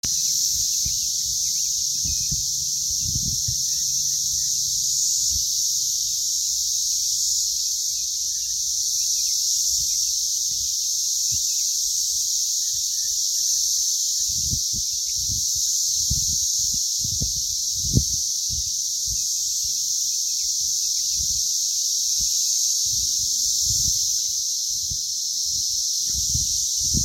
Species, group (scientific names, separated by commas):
Magicicada tredecassini, Cicadidae